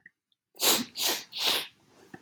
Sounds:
Sniff